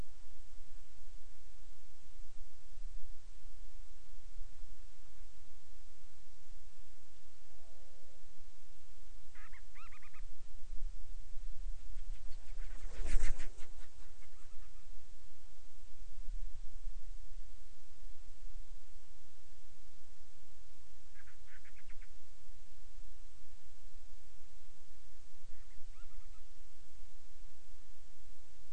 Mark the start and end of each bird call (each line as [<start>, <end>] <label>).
[9.27, 10.27] Band-rumped Storm-Petrel (Hydrobates castro)
[20.97, 22.17] Band-rumped Storm-Petrel (Hydrobates castro)
[25.47, 26.57] Band-rumped Storm-Petrel (Hydrobates castro)